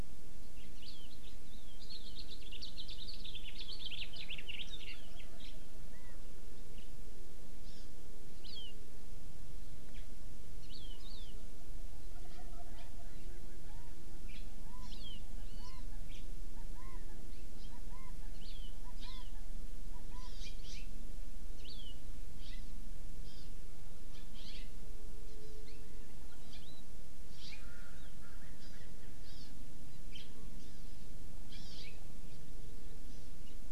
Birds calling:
Erckel's Francolin (Pternistis erckelii), House Finch (Haemorhous mexicanus), Wild Turkey (Meleagris gallopavo), Chinese Hwamei (Garrulax canorus), Hawaii Amakihi (Chlorodrepanis virens)

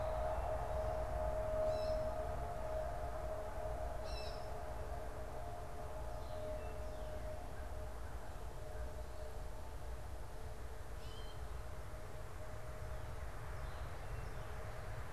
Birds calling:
Northern Cardinal (Cardinalis cardinalis), Gray Catbird (Dumetella carolinensis)

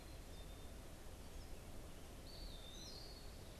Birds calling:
Black-capped Chickadee (Poecile atricapillus), Eastern Wood-Pewee (Contopus virens)

